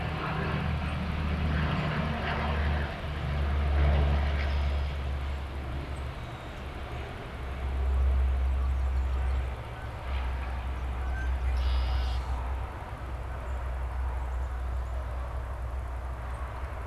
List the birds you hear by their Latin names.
Agelaius phoeniceus, Melospiza melodia, Branta canadensis